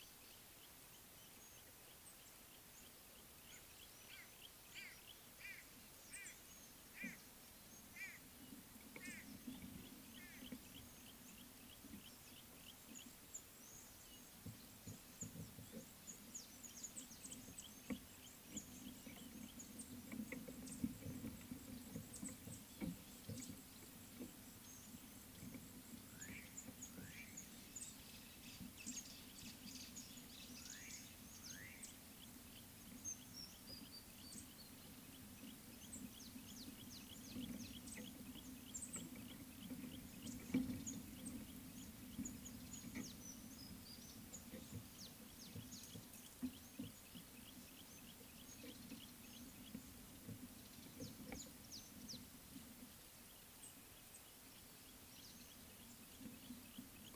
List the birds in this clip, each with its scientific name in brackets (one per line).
Yellow-breasted Apalis (Apalis flavida)
Rufous Chatterer (Argya rubiginosa)
Mouse-colored Penduline-Tit (Anthoscopus musculus)
White-bellied Go-away-bird (Corythaixoides leucogaster)
Red-fronted Prinia (Prinia rufifrons)